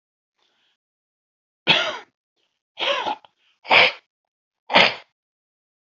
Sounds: Throat clearing